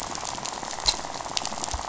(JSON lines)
{"label": "biophony, rattle", "recorder": "SoundTrap 500"}